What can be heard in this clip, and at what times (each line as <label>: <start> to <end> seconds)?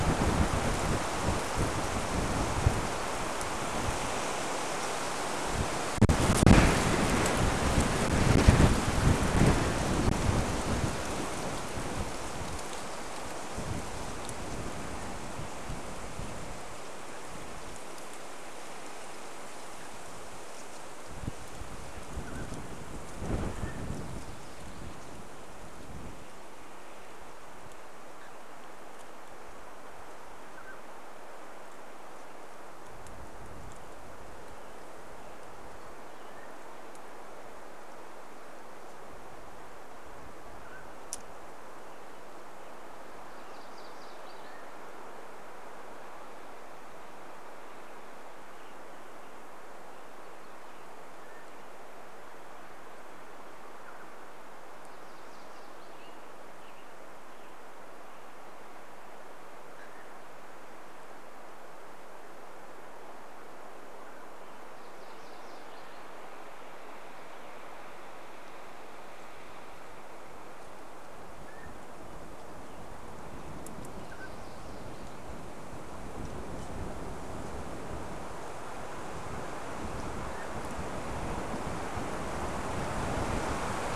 Mountain Quail call: 22 to 24 seconds
unidentified sound: 28 to 30 seconds
Mountain Quail call: 30 to 32 seconds
Mountain Quail call: 36 to 38 seconds
Mountain Quail call: 40 to 42 seconds
MacGillivray's Warbler song: 42 to 46 seconds
Mountain Quail call: 44 to 46 seconds
unidentified sound: 48 to 50 seconds
MacGillivray's Warbler song: 50 to 52 seconds
Mountain Quail call: 50 to 54 seconds
MacGillivray's Warbler song: 54 to 56 seconds
Mountain Quail call: 58 to 60 seconds
MacGillivray's Warbler song: 64 to 66 seconds
Mountain Quail call: 70 to 72 seconds
Mountain Quail call: 74 to 76 seconds
Mountain Quail call: 80 to 82 seconds